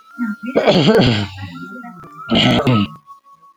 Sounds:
Throat clearing